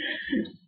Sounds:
Laughter